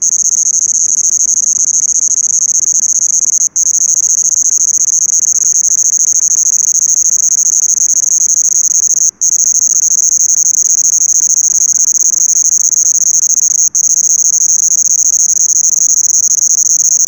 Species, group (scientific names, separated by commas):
Svercus palmetorum, Orthoptera